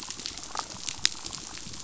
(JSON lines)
{"label": "biophony, damselfish", "recorder": "SoundTrap 500"}
{"label": "biophony", "recorder": "SoundTrap 500"}